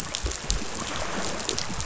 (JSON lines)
{"label": "biophony", "recorder": "SoundTrap 500"}